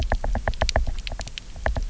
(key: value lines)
label: biophony, knock
recorder: SoundTrap 300